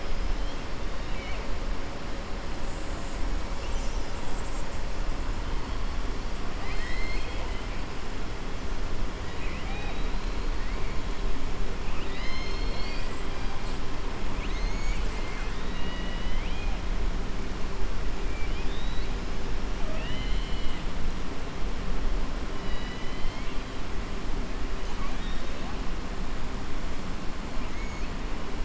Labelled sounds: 6.5	7.7	killer whale, southern resident, 1.2 to 5.4 kHz
9.3	10.1	killer whale, southern resident, 0.82 to 4.0 kHz
11.8	13.1	killer whale, southern resident, 1.9 to 6.4 kHz
14.3	16.7	killer whale, southern resident, 1.5 to 8.0 kHz
18.3	19.1	killer whale, southern resident, 2.3 to 4.5 kHz
19.8	20.8	killer whale, southern resident, 0.63 to 4.3 kHz
22.5	23.6	killer whale, southern resident, 1.9 to 5.5 kHz
24.9	25.7	killer whale, southern resident, 0.81 to 6.3 kHz
27.6	28.1	killer whale, southern resident, 2.0 to 2.8 kHz

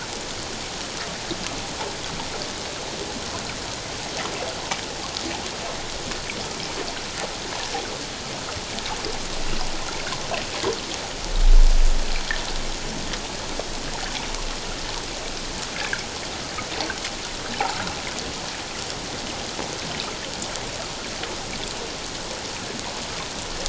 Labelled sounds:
15.8	16.0	water noise, 1.3 to 1.8 kHz

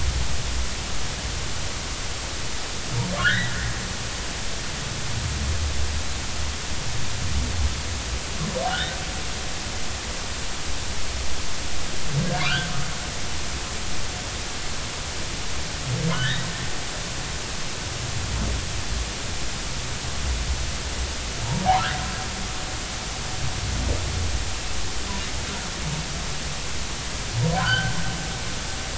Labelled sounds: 3.2	3.5	humpback whale, 1.3 to 2.0 kHz
8.6	8.9	humpback whale, 2.8 to 3.2 kHz
16.1	16.4	humpback whale, 1.4 to 1.6 kHz
27.6	28.0	humpback whale, 1.3 to 1.7 kHz

